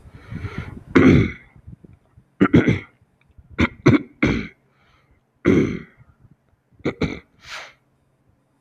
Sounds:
Throat clearing